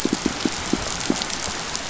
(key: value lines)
label: biophony, pulse
recorder: SoundTrap 500